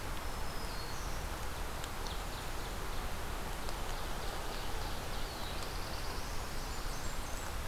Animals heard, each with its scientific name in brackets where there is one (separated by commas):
Black-throated Blue Warbler (Setophaga caerulescens), Blackburnian Warbler (Setophaga fusca), Ovenbird (Seiurus aurocapilla), Pine Warbler (Setophaga pinus), Black-throated Green Warbler (Setophaga virens)